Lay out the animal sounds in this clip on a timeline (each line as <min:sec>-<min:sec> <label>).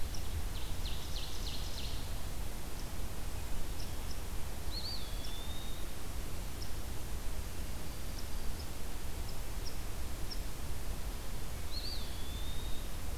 0:00.0-0:02.3 Ovenbird (Seiurus aurocapilla)
0:04.5-0:06.0 Eastern Wood-Pewee (Contopus virens)
0:11.5-0:13.2 Eastern Wood-Pewee (Contopus virens)